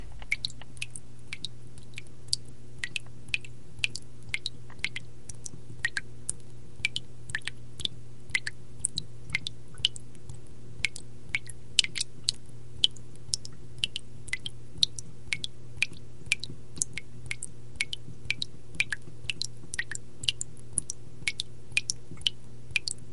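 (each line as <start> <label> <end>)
0.0 Rhythmic, repeating water drops. 23.1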